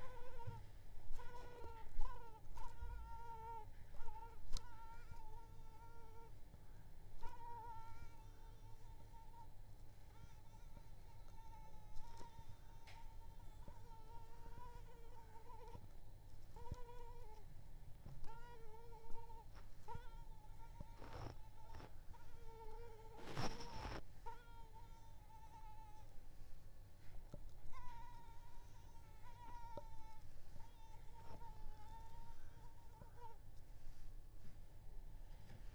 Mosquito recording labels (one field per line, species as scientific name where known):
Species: Culex pipiens complex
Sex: female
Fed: unfed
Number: one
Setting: cup